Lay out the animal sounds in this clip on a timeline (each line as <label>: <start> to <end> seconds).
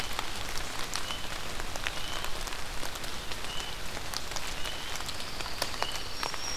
unidentified call: 0.0 to 6.6 seconds
Pine Warbler (Setophaga pinus): 4.9 to 6.4 seconds
Black-throated Green Warbler (Setophaga virens): 6.0 to 6.6 seconds